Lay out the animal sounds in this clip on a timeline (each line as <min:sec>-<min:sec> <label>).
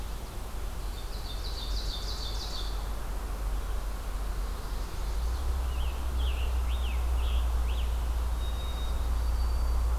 0:00.7-0:03.0 Ovenbird (Seiurus aurocapilla)
0:04.4-0:05.5 Chestnut-sided Warbler (Setophaga pensylvanica)
0:05.3-0:08.2 Scarlet Tanager (Piranga olivacea)
0:08.2-0:10.0 White-throated Sparrow (Zonotrichia albicollis)